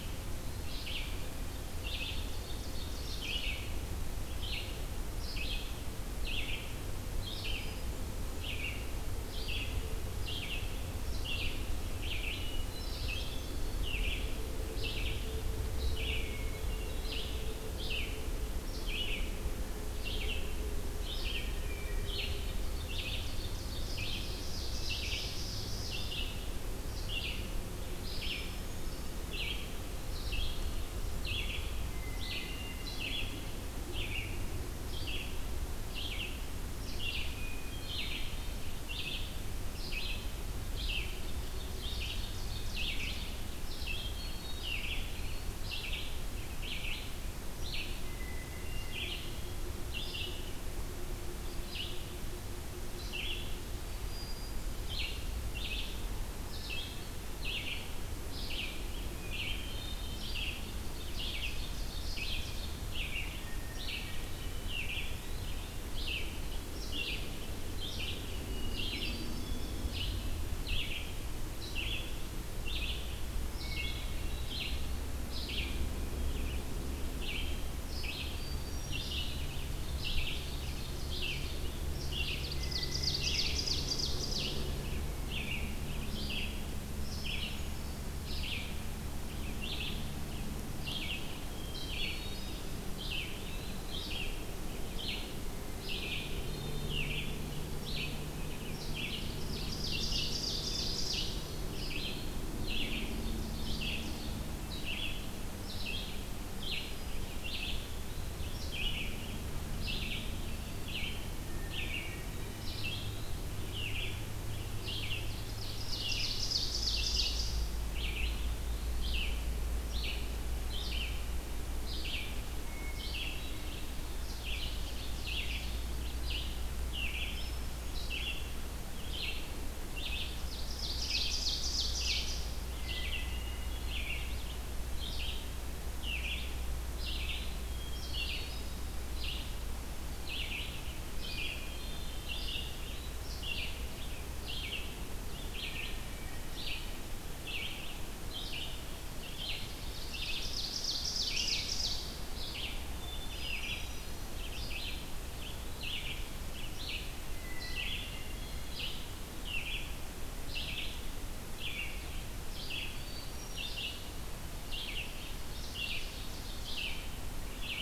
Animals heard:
Hermit Thrush (Catharus guttatus), Ovenbird (Seiurus aurocapilla), Eastern Wood-Pewee (Contopus virens), Red-eyed Vireo (Vireo olivaceus)

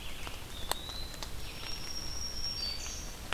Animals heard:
Eastern Wood-Pewee (Contopus virens), Black-throated Green Warbler (Setophaga virens), Red-eyed Vireo (Vireo olivaceus)

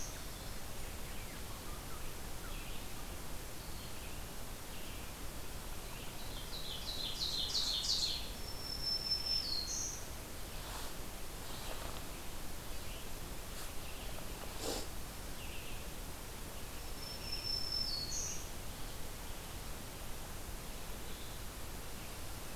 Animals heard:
Red-eyed Vireo (Vireo olivaceus), Ovenbird (Seiurus aurocapilla), Black-throated Green Warbler (Setophaga virens)

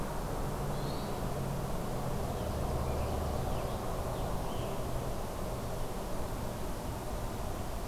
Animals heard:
Scarlet Tanager (Piranga olivacea), Hermit Thrush (Catharus guttatus)

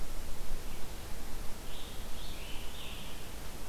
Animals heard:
Scarlet Tanager (Piranga olivacea)

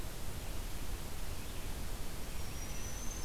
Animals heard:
Red-eyed Vireo (Vireo olivaceus), Black-throated Green Warbler (Setophaga virens)

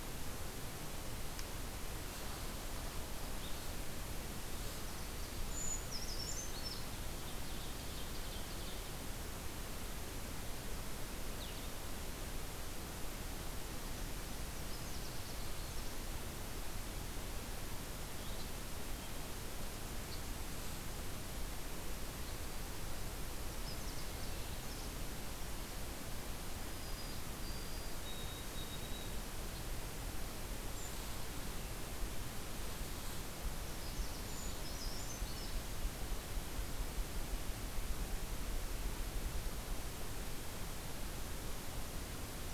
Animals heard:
Blue-headed Vireo (Vireo solitarius), White-throated Sparrow (Zonotrichia albicollis), Canada Warbler (Cardellina canadensis), Ovenbird (Seiurus aurocapilla), Brown Creeper (Certhia americana)

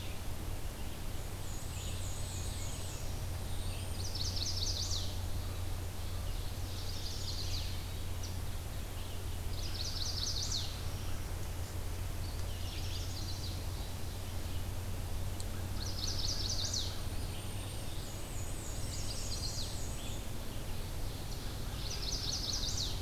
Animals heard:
Black-and-white Warbler (Mniotilta varia), Black-throated Blue Warbler (Setophaga caerulescens), Golden-crowned Kinglet (Regulus satrapa), Chestnut-sided Warbler (Setophaga pensylvanica), Ovenbird (Seiurus aurocapilla), Red-eyed Vireo (Vireo olivaceus)

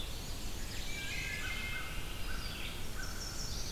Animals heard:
Red-eyed Vireo (Vireo olivaceus), Chestnut-sided Warbler (Setophaga pensylvanica), American Crow (Corvus brachyrhynchos), Black-and-white Warbler (Mniotilta varia), Wood Thrush (Hylocichla mustelina)

